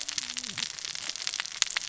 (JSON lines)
{"label": "biophony, cascading saw", "recorder": "SoundTrap 600 or HydroMoth"}